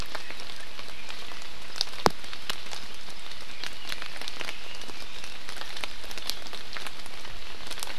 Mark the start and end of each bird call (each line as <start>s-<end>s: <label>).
3.4s-5.4s: Red-billed Leiothrix (Leiothrix lutea)